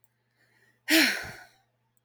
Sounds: Sigh